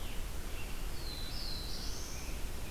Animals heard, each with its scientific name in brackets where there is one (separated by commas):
Scarlet Tanager (Piranga olivacea), Black-throated Blue Warbler (Setophaga caerulescens)